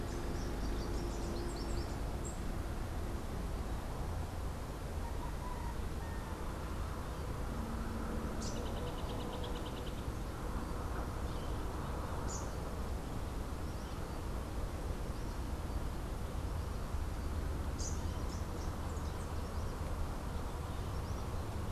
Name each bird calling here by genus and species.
Melanerpes hoffmannii, Basileuterus rufifrons